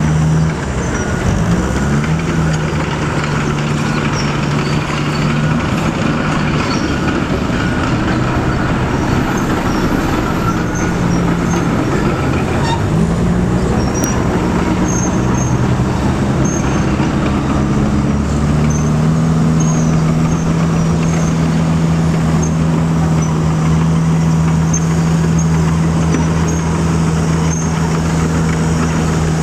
Is there a vehicle moving around?
yes